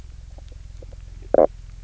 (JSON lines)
{"label": "biophony, knock croak", "recorder": "SoundTrap 300"}